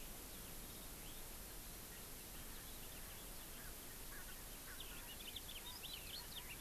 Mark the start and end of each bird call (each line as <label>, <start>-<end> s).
Eurasian Skylark (Alauda arvensis), 0.2-3.7 s
Erckel's Francolin (Pternistis erckelii), 3.5-5.1 s
House Finch (Haemorhous mexicanus), 4.7-6.4 s
California Quail (Callipepla californica), 5.5-6.5 s